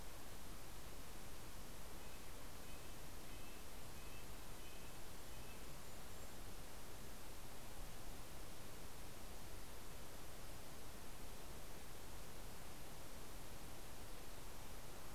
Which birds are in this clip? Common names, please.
Red-breasted Nuthatch